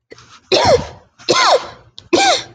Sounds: Cough